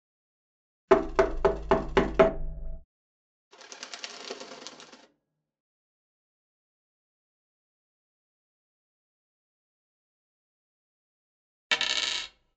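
At 0.87 seconds, knocking is heard. Then, at 3.5 seconds, a quiet bird can be heard. Later, at 11.69 seconds, a coin drops.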